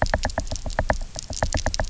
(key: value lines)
label: biophony, knock
recorder: SoundTrap 300